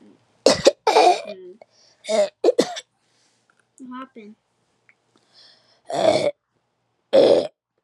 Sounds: Throat clearing